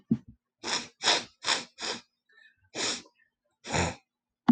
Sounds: Sniff